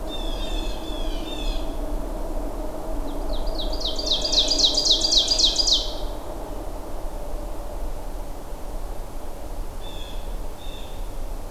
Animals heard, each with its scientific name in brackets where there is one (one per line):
Ovenbird (Seiurus aurocapilla)
Blue Jay (Cyanocitta cristata)